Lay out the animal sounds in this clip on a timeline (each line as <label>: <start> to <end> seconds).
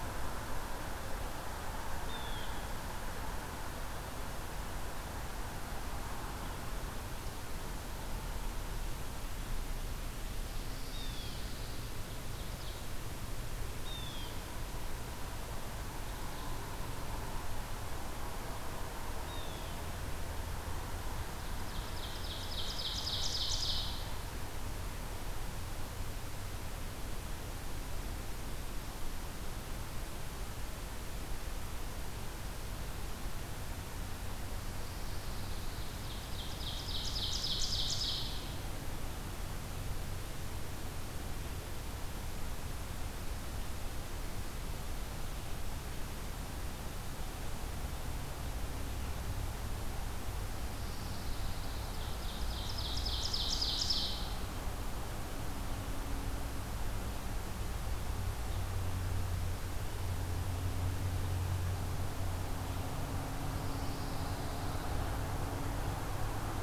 Blue Jay (Cyanocitta cristata): 2.0 to 2.6 seconds
Pine Warbler (Setophaga pinus): 10.5 to 11.8 seconds
Blue Jay (Cyanocitta cristata): 10.8 to 11.4 seconds
Ovenbird (Seiurus aurocapilla): 11.1 to 13.0 seconds
Blue Jay (Cyanocitta cristata): 13.7 to 14.4 seconds
Blue Jay (Cyanocitta cristata): 19.2 to 19.8 seconds
Ovenbird (Seiurus aurocapilla): 21.3 to 24.2 seconds
Pine Warbler (Setophaga pinus): 34.4 to 36.0 seconds
Ovenbird (Seiurus aurocapilla): 35.9 to 38.6 seconds
Pine Warbler (Setophaga pinus): 50.5 to 52.0 seconds
Ovenbird (Seiurus aurocapilla): 51.5 to 54.6 seconds
Pine Warbler (Setophaga pinus): 63.4 to 65.2 seconds